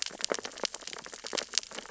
{"label": "biophony, sea urchins (Echinidae)", "recorder": "SoundTrap 600 or HydroMoth"}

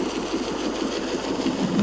{"label": "anthrophony, boat engine", "recorder": "SoundTrap 500"}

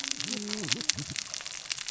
{"label": "biophony, cascading saw", "recorder": "SoundTrap 600 or HydroMoth"}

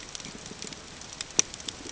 {"label": "ambient", "recorder": "HydroMoth"}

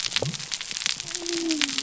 {"label": "biophony", "recorder": "SoundTrap 300"}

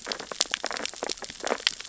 {"label": "biophony, sea urchins (Echinidae)", "recorder": "SoundTrap 600 or HydroMoth"}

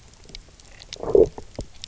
{"label": "biophony, low growl", "recorder": "SoundTrap 300"}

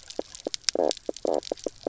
{"label": "biophony, knock croak", "recorder": "SoundTrap 300"}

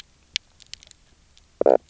{"label": "biophony, knock croak", "recorder": "SoundTrap 300"}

